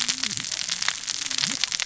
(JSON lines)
{"label": "biophony, cascading saw", "recorder": "SoundTrap 600 or HydroMoth"}